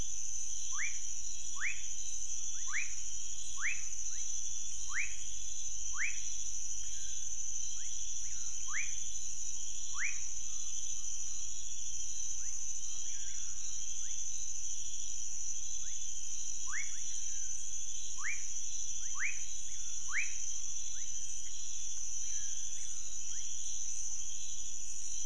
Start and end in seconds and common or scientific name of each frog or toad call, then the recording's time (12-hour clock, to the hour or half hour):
0.0	10.5	rufous frog
16.4	20.8	rufous frog
2am